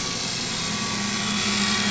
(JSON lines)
{"label": "anthrophony, boat engine", "recorder": "SoundTrap 500"}